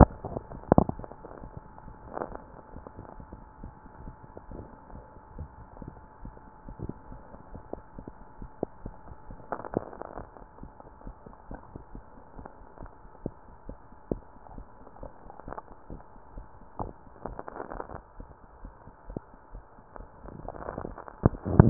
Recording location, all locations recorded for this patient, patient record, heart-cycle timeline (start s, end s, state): mitral valve (MV)
pulmonary valve (PV)+mitral valve (MV)
#Age: nan
#Sex: Female
#Height: nan
#Weight: nan
#Pregnancy status: True
#Murmur: Absent
#Murmur locations: nan
#Most audible location: nan
#Systolic murmur timing: nan
#Systolic murmur shape: nan
#Systolic murmur grading: nan
#Systolic murmur pitch: nan
#Systolic murmur quality: nan
#Diastolic murmur timing: nan
#Diastolic murmur shape: nan
#Diastolic murmur grading: nan
#Diastolic murmur pitch: nan
#Diastolic murmur quality: nan
#Outcome: Normal
#Campaign: 2015 screening campaign
0.00	3.59	unannotated
3.59	3.72	S1
3.72	4.01	systole
4.01	4.14	S2
4.14	4.47	diastole
4.47	4.62	S1
4.62	4.87	systole
4.87	5.03	S2
5.03	5.34	diastole
5.34	5.49	S1
5.49	5.78	systole
5.78	5.90	S2
5.90	6.21	diastole
6.21	6.33	S1
6.33	6.63	systole
6.63	6.75	S2
6.75	7.05	diastole
7.05	7.19	S1
7.19	7.49	systole
7.49	7.62	S2
7.62	7.96	diastole
7.96	8.10	S1
8.10	8.36	systole
8.36	8.50	S2
8.50	8.82	diastole
8.82	8.93	S1
8.93	9.27	systole
9.27	9.38	S2
9.38	21.70	unannotated